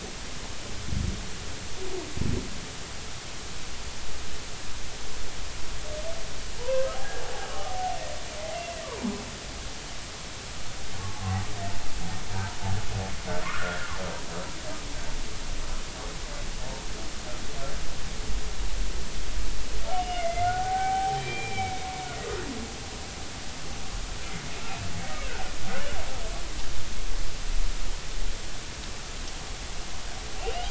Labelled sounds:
6.6	7.0	humpback whale, 0.86 to 1.7 kHz
7.5	8.7	humpback whale, 0.80 to 2.2 kHz
13.4	13.8	humpback whale, 0.99 to 1.5 kHz
19.9	21.9	humpback whale, 0.80 to 3.3 kHz
24.6	24.9	humpback whale, 2.4 to 2.8 kHz
30.4	30.6	humpback whale, 2.6 to 3.1 kHz

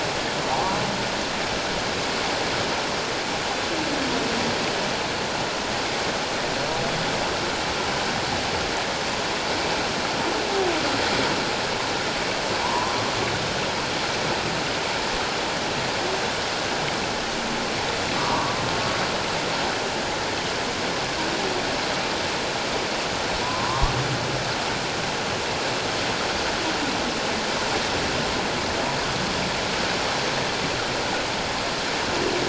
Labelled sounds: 0.5	0.8	humpback whale, 0.78 to 1.1 kHz
12.6	13.0	humpback whale, 0.84 to 1.1 kHz
18.2	18.6	humpback whale, 0.91 to 1.2 kHz
23.4	23.9	humpback whale, 0.91 to 1.2 kHz

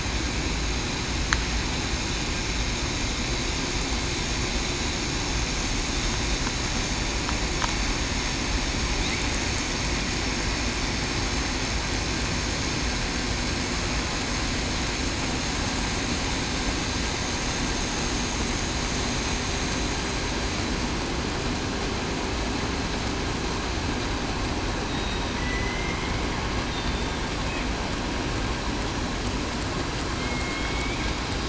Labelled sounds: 25.4	26.1	killer whale, southern resident, 1.9 to 2.2 kHz
26.7	27.2	killer whale, southern resident, 3.5 to 3.7 kHz
30.2	31.0	killer whale, southern resident, 2.1 to 2.4 kHz

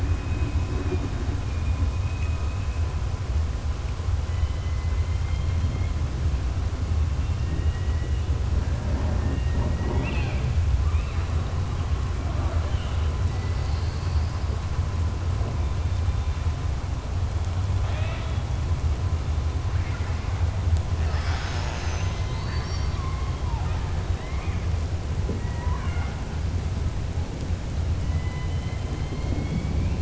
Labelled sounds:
1.9	2.7	killer whale, southern resident, 2.0 to 2.9 kHz
4.2	5.9	killer whale, southern resident, 1.5 to 4.2 kHz
17.8	18.4	killer whale, southern resident, 0.62 to 3.9 kHz
28.0	29.9	killer whale, southern resident, 2.0 to 4.3 kHz

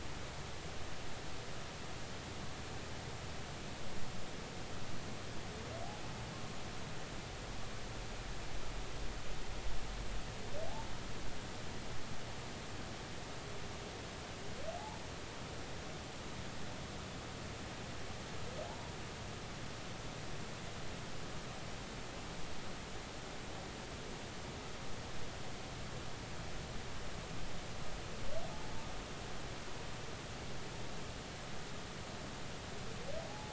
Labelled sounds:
18.7	18.9	humpback whale, 0.80 to 0.99 kHz
33.3	33.5	humpback whale, 0.80 to 0.90 kHz

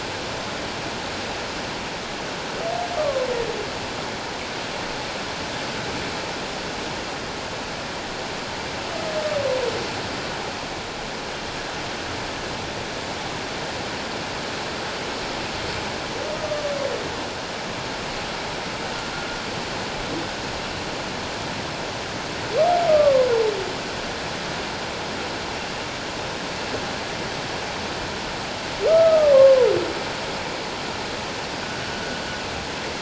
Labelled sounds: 3.0	3.3	humpback whale, 1.0 to 1.2 kHz
16.4	16.7	humpback whale, 1.1 to 1.2 kHz
22.9	23.3	humpback whale, 1.0 to 1.3 kHz
28.9	29.7	humpback whale, 0.91 to 1.4 kHz

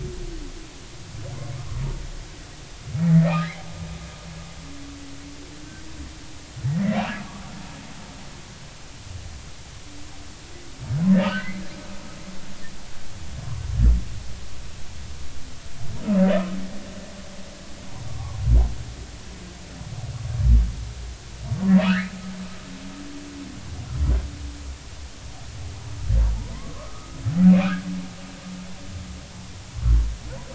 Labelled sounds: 3.0	3.5	humpback whale, 1.0 to 2.0 kHz
11.1	11.6	humpback whale, 1.4 to 3.1 kHz
18.1	18.4	humpback whale, 0.80 to 1.2 kHz
21.9	22.1	humpback whale, 1.1 to 2.2 kHz

